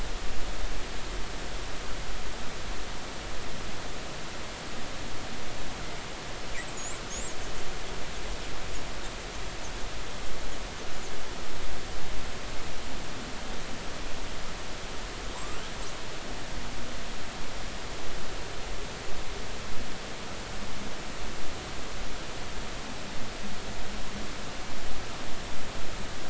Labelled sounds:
6.7	7.0	killer whale, 6.5 to 8.0 kHz
15.3	15.6	killer whale, 0.90 to 1.3 kHz

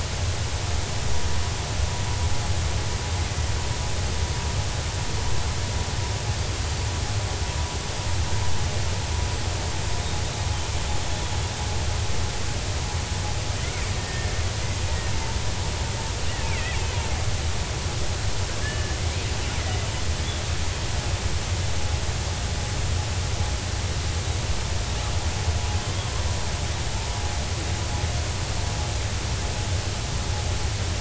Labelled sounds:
11.1	11.4	killer whale, 3.3 to 3.5 kHz
14.0	14.3	killer whale, 1.7 to 1.9 kHz
16.4	16.8	killer whale, 1.7 to 2.6 kHz
18.6	19.0	killer whale, 1.7 to 3.0 kHz
19.6	19.9	killer whale, 1.9 to 2.1 kHz
25.8	26.1	killer whale, 3.1 to 3.4 kHz

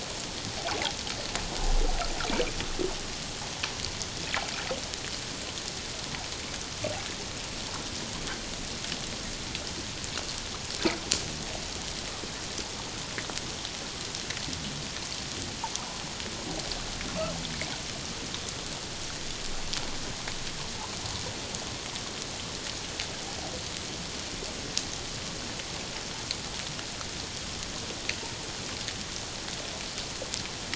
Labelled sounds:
0.7	0.9	water noise, 0.78 to 1.2 kHz

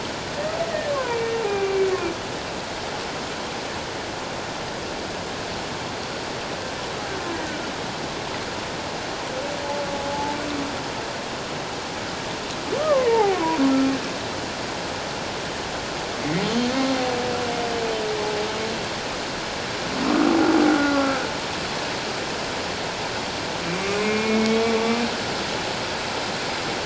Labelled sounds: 0.9	1.9	humpback whale, 0.91 to 2.5 kHz
12.8	13.6	humpback whale, 0.78 to 1.3 kHz
20.7	21.2	humpback whale, 1.3 to 1.5 kHz
23.7	24.7	humpback whale, 2.1 to 2.6 kHz

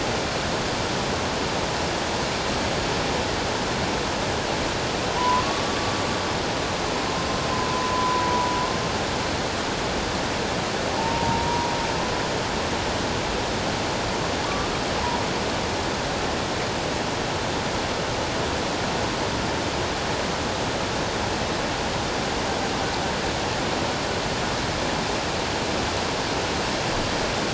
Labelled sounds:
5.2	5.8	humpback whale, 0.91 to 1.2 kHz
7.5	8.5	humpback whale, 0.88 to 1.1 kHz
11.0	11.7	humpback whale, 0.78 to 1.0 kHz
14.4	14.7	humpback whale, 0.91 to 1.2 kHz

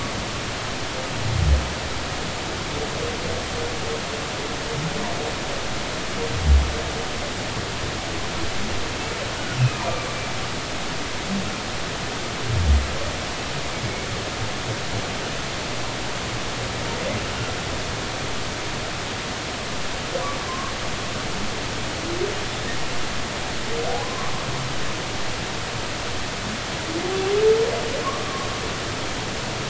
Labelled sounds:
9.6	9.9	humpback whale, 2.3 to 2.7 kHz
20.5	20.7	humpback whale, 0.99 to 1.2 kHz
24.0	24.3	humpback whale, 0.93 to 1.2 kHz

